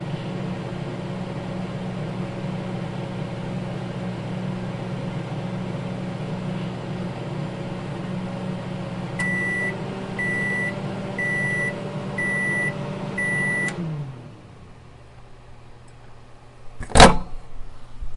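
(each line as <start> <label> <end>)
0.0 A microwave hums steadily. 9.2
9.2 A microwave beeps sharply five times at steady intervals. 14.2
16.8 A microwave door clicks open. 18.2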